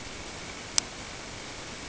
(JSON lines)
{"label": "ambient", "recorder": "HydroMoth"}